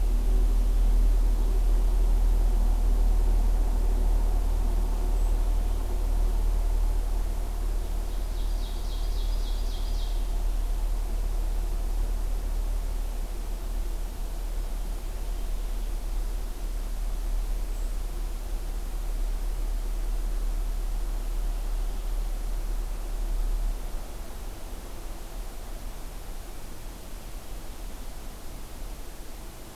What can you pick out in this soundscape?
Ovenbird